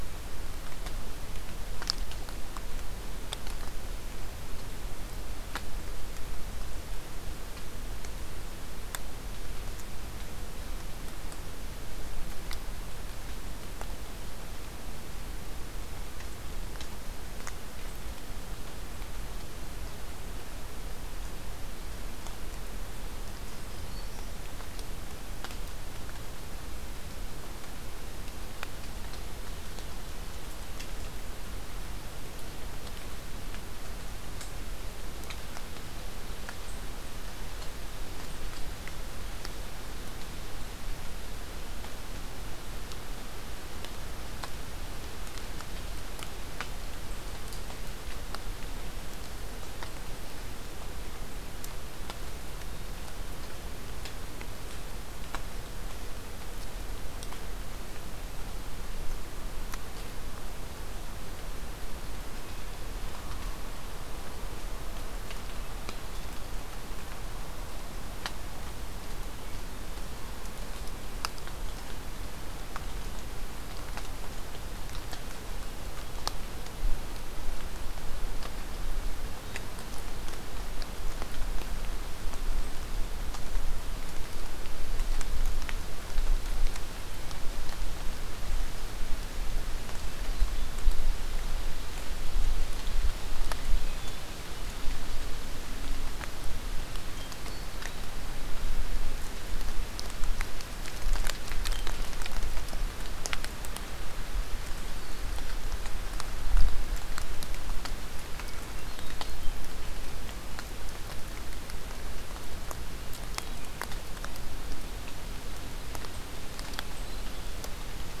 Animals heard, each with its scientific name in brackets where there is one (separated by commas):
Black-throated Green Warbler (Setophaga virens), Hermit Thrush (Catharus guttatus)